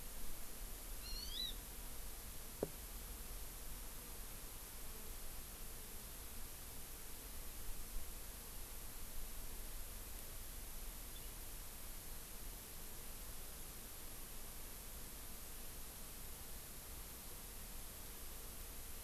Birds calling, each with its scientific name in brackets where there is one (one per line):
Hawaii Amakihi (Chlorodrepanis virens)